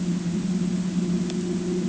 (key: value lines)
label: ambient
recorder: HydroMoth